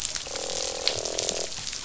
{"label": "biophony, croak", "recorder": "SoundTrap 500"}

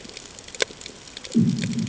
{"label": "anthrophony, bomb", "recorder": "HydroMoth"}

